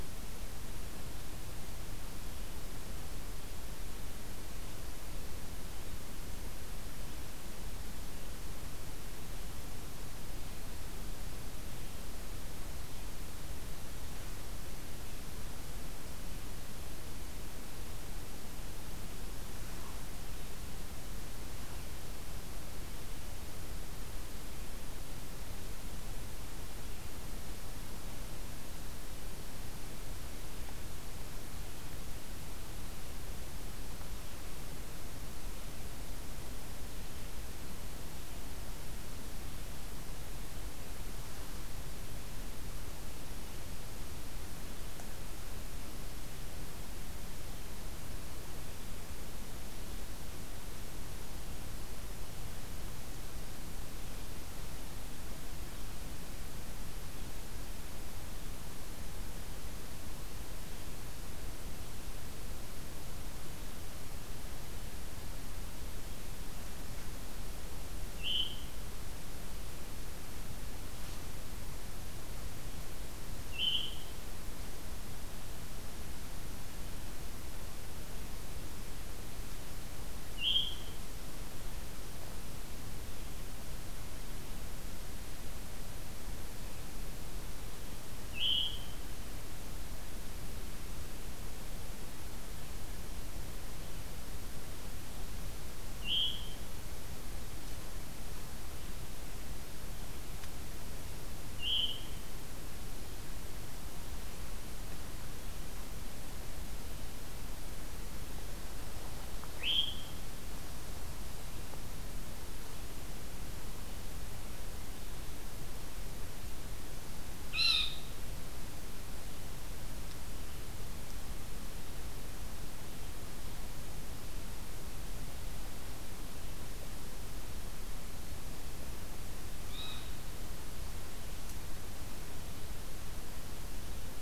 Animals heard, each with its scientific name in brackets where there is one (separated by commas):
Veery (Catharus fuscescens), unidentified call